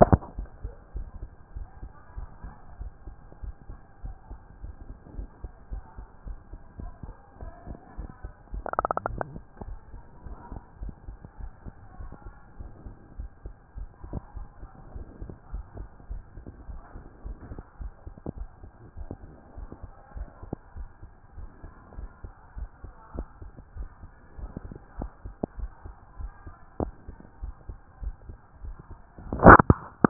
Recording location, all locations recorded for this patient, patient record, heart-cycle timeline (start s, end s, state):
mitral valve (MV)
aortic valve (AV)+pulmonary valve (PV)+tricuspid valve (TV)+mitral valve (MV)
#Age: Child
#Sex: Male
#Height: 139.0 cm
#Weight: 36.6 kg
#Pregnancy status: False
#Murmur: Absent
#Murmur locations: nan
#Most audible location: nan
#Systolic murmur timing: nan
#Systolic murmur shape: nan
#Systolic murmur grading: nan
#Systolic murmur pitch: nan
#Systolic murmur quality: nan
#Diastolic murmur timing: nan
#Diastolic murmur shape: nan
#Diastolic murmur grading: nan
#Diastolic murmur pitch: nan
#Diastolic murmur quality: nan
#Outcome: Normal
#Campaign: 2014 screening campaign
0.00	0.25	unannotated
0.25	0.36	diastole
0.36	0.48	S1
0.48	0.62	systole
0.62	0.72	S2
0.72	0.94	diastole
0.94	1.08	S1
1.08	1.20	systole
1.20	1.30	S2
1.30	1.54	diastole
1.54	1.68	S1
1.68	1.82	systole
1.82	1.90	S2
1.90	2.16	diastole
2.16	2.28	S1
2.28	2.44	systole
2.44	2.52	S2
2.52	2.80	diastole
2.80	2.92	S1
2.92	3.06	systole
3.06	3.14	S2
3.14	3.42	diastole
3.42	3.54	S1
3.54	3.68	systole
3.68	3.78	S2
3.78	4.04	diastole
4.04	4.16	S1
4.16	4.30	systole
4.30	4.40	S2
4.40	4.62	diastole
4.62	4.74	S1
4.74	4.88	systole
4.88	4.96	S2
4.96	5.16	diastole
5.16	5.28	S1
5.28	5.42	systole
5.42	5.52	S2
5.52	5.70	diastole
5.70	5.84	S1
5.84	5.98	systole
5.98	6.06	S2
6.06	6.26	diastole
6.26	6.38	S1
6.38	6.52	systole
6.52	6.60	S2
6.60	6.80	diastole
6.80	6.92	S1
6.92	7.04	systole
7.04	7.14	S2
7.14	7.40	diastole
7.40	7.52	S1
7.52	7.68	systole
7.68	7.78	S2
7.78	7.98	diastole
7.98	8.10	S1
8.10	8.22	systole
8.22	8.32	S2
8.32	8.52	diastole
8.52	30.10	unannotated